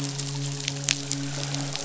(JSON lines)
{"label": "biophony, midshipman", "recorder": "SoundTrap 500"}